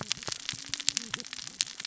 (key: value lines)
label: biophony, cascading saw
recorder: SoundTrap 600 or HydroMoth